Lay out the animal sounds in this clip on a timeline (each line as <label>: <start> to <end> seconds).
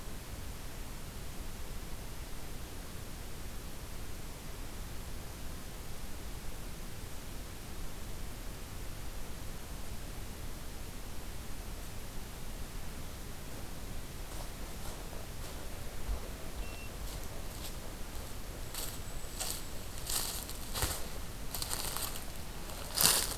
Blackpoll Warbler (Setophaga striata): 18.4 to 19.9 seconds